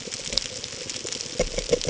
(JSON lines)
{"label": "ambient", "recorder": "HydroMoth"}